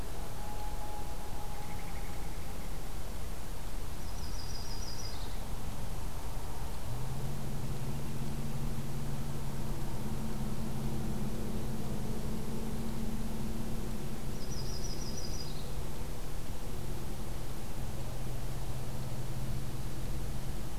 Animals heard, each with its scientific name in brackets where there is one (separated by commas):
Mourning Dove (Zenaida macroura), Common Loon (Gavia immer), Yellow-rumped Warbler (Setophaga coronata)